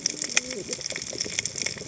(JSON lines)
{"label": "biophony, cascading saw", "recorder": "HydroMoth"}